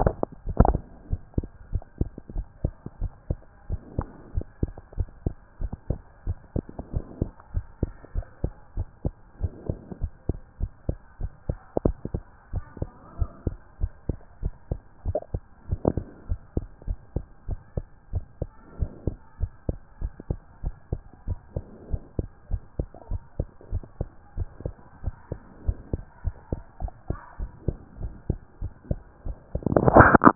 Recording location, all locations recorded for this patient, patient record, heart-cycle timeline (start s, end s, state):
pulmonary valve (PV)
aortic valve (AV)+pulmonary valve (PV)+tricuspid valve (TV)+mitral valve (MV)
#Age: Child
#Sex: Female
#Height: nan
#Weight: 24.2 kg
#Pregnancy status: False
#Murmur: Absent
#Murmur locations: nan
#Most audible location: nan
#Systolic murmur timing: nan
#Systolic murmur shape: nan
#Systolic murmur grading: nan
#Systolic murmur pitch: nan
#Systolic murmur quality: nan
#Diastolic murmur timing: nan
#Diastolic murmur shape: nan
#Diastolic murmur grading: nan
#Diastolic murmur pitch: nan
#Diastolic murmur quality: nan
#Outcome: Normal
#Campaign: 2014 screening campaign
0.00	0.18	S1
0.18	0.32	systole
0.32	0.38	S2
0.38	0.60	diastole
0.60	0.78	S1
0.78	0.86	systole
0.86	0.90	S2
0.90	1.10	diastole
1.10	1.20	S1
1.20	1.34	systole
1.34	1.48	S2
1.48	1.70	diastole
1.70	1.82	S1
1.82	1.98	systole
1.98	2.12	S2
2.12	2.34	diastole
2.34	2.46	S1
2.46	2.60	systole
2.60	2.74	S2
2.74	3.00	diastole
3.00	3.12	S1
3.12	3.26	systole
3.26	3.38	S2
3.38	3.66	diastole
3.66	3.80	S1
3.80	3.94	systole
3.94	4.06	S2
4.06	4.30	diastole
4.30	4.44	S1
4.44	4.58	systole
4.58	4.74	S2
4.74	4.96	diastole
4.96	5.08	S1
5.08	5.22	systole
5.22	5.34	S2
5.34	5.60	diastole
5.60	5.72	S1
5.72	5.86	systole
5.86	5.98	S2
5.98	6.24	diastole
6.24	6.38	S1
6.38	6.54	systole
6.54	6.66	S2
6.66	6.90	diastole
6.90	7.04	S1
7.04	7.20	systole
7.20	7.32	S2
7.32	7.52	diastole
7.52	7.64	S1
7.64	7.78	systole
7.78	7.90	S2
7.90	8.14	diastole
8.14	8.26	S1
8.26	8.42	systole
8.42	8.52	S2
8.52	8.76	diastole
8.76	8.88	S1
8.88	9.04	systole
9.04	9.14	S2
9.14	9.38	diastole
9.38	9.52	S1
9.52	9.66	systole
9.66	9.78	S2
9.78	10.00	diastole
10.00	10.12	S1
10.12	10.28	systole
10.28	10.40	S2
10.40	10.62	diastole
10.62	10.72	S1
10.72	10.84	systole
10.84	10.96	S2
10.96	11.20	diastole
11.20	11.32	S1
11.32	11.48	systole
11.48	11.60	S2
11.60	11.84	diastole
11.84	11.96	S1
11.96	12.12	systole
12.12	12.24	S2
12.24	12.50	diastole
12.50	12.64	S1
12.64	12.80	systole
12.80	12.90	S2
12.90	13.16	diastole
13.16	13.30	S1
13.30	13.44	systole
13.44	13.58	S2
13.58	13.80	diastole
13.80	13.92	S1
13.92	14.08	systole
14.08	14.20	S2
14.20	14.42	diastole
14.42	14.54	S1
14.54	14.70	systole
14.70	14.82	S2
14.82	15.06	diastole
15.06	15.20	S1
15.20	15.32	systole
15.32	15.44	S2
15.44	15.70	diastole
15.70	15.84	S1
15.84	15.98	systole
15.98	16.08	S2
16.08	16.28	diastole
16.28	16.40	S1
16.40	16.52	systole
16.52	16.64	S2
16.64	16.86	diastole
16.86	16.98	S1
16.98	17.12	systole
17.12	17.24	S2
17.24	17.46	diastole
17.46	17.60	S1
17.60	17.76	systole
17.76	17.86	S2
17.86	18.12	diastole
18.12	18.26	S1
18.26	18.40	systole
18.40	18.50	S2
18.50	18.76	diastole
18.76	18.94	S1
18.94	19.08	systole
19.08	19.18	S2
19.18	19.40	diastole
19.40	19.52	S1
19.52	19.68	systole
19.68	19.80	S2
19.80	20.02	diastole
20.02	20.12	S1
20.12	20.26	systole
20.26	20.38	S2
20.38	20.64	diastole
20.64	20.74	S1
20.74	20.88	systole
20.88	21.00	S2
21.00	21.26	diastole
21.26	21.40	S1
21.40	21.54	systole
21.54	21.64	S2
21.64	21.88	diastole
21.88	22.02	S1
22.02	22.16	systole
22.16	22.28	S2
22.28	22.50	diastole
22.50	22.62	S1
22.62	22.78	systole
22.78	22.88	S2
22.88	23.10	diastole
23.10	23.22	S1
23.22	23.38	systole
23.38	23.48	S2
23.48	23.70	diastole
23.70	23.84	S1
23.84	23.98	systole
23.98	24.10	S2
24.10	24.36	diastole
24.36	24.50	S1
24.50	24.64	systole
24.64	24.76	S2
24.76	25.02	diastole
25.02	25.16	S1
25.16	25.30	systole
25.30	25.40	S2
25.40	25.62	diastole
25.62	25.76	S1
25.76	25.92	systole
25.92	26.04	S2
26.04	26.24	diastole
26.24	26.34	S1
26.34	26.48	systole
26.48	26.62	S2
26.62	26.82	diastole
26.82	26.92	S1
26.92	27.08	systole
27.08	27.18	S2
27.18	27.40	diastole
27.40	27.52	S1
27.52	27.66	systole
27.66	27.76	S2
27.76	28.00	diastole
28.00	28.14	S1
28.14	28.28	systole
28.28	28.40	S2
28.40	28.60	diastole
28.60	28.74	S1
28.74	28.88	systole
28.88	29.02	S2
29.02	29.26	diastole
29.26	29.38	S1
29.38	29.52	systole
29.52	29.64	S2
29.64	29.94	diastole
29.94	30.12	S1
30.12	30.24	systole
30.24	30.35	S2